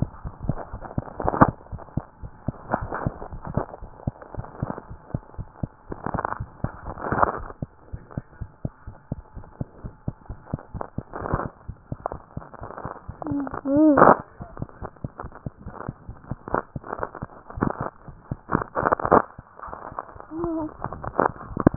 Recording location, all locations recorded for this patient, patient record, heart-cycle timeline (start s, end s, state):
mitral valve (MV)
aortic valve (AV)+pulmonary valve (PV)+mitral valve (MV)
#Age: Infant
#Sex: Female
#Height: 74.0 cm
#Weight: 9.015 kg
#Pregnancy status: False
#Murmur: Present
#Murmur locations: mitral valve (MV)+pulmonary valve (PV)
#Most audible location: mitral valve (MV)
#Systolic murmur timing: Early-systolic
#Systolic murmur shape: Plateau
#Systolic murmur grading: I/VI
#Systolic murmur pitch: Low
#Systolic murmur quality: Blowing
#Diastolic murmur timing: nan
#Diastolic murmur shape: nan
#Diastolic murmur grading: nan
#Diastolic murmur pitch: nan
#Diastolic murmur quality: nan
#Outcome: Normal
#Campaign: 2015 screening campaign
0.00	3.80	unannotated
3.80	3.94	S1
3.94	4.02	systole
4.02	4.16	S2
4.16	4.36	diastole
4.36	4.50	S1
4.50	4.60	systole
4.60	4.70	S2
4.70	4.88	diastole
4.88	5.00	S1
5.00	5.08	systole
5.08	5.22	S2
5.22	5.37	diastole
5.37	5.48	S1
5.48	5.58	systole
5.58	5.72	S2
5.72	5.88	diastole
5.88	6.00	S1
6.00	6.10	systole
6.10	6.22	S2
6.22	6.38	diastole
6.38	6.50	S1
6.50	6.58	systole
6.58	6.72	S2
6.72	7.60	unannotated
7.60	7.70	S2
7.70	7.88	diastole
7.88	8.02	S1
8.02	8.12	systole
8.12	8.22	S2
8.22	8.40	diastole
8.40	8.50	S1
8.50	8.60	systole
8.60	8.70	S2
8.70	8.86	diastole
8.86	8.96	S1
8.96	9.06	systole
9.06	9.16	S2
9.16	9.36	diastole
9.36	9.48	S1
9.48	9.56	systole
9.56	9.66	S2
9.66	9.84	diastole
9.84	9.94	S1
9.94	10.06	systole
10.06	10.13	S2
10.13	10.26	diastole
10.26	10.40	S1
10.40	10.52	systole
10.52	10.62	S2
10.62	10.74	diastole
10.74	10.82	S1
10.82	10.96	systole
10.96	11.08	S2
11.08	11.65	unannotated
11.65	11.75	S1
11.75	11.88	systole
11.88	11.98	S2
11.98	12.12	diastole
12.12	12.20	S1
12.20	12.35	systole
12.35	12.43	S2
12.43	21.76	unannotated